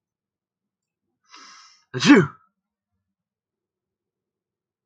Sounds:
Sneeze